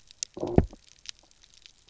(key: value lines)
label: biophony, low growl
recorder: SoundTrap 300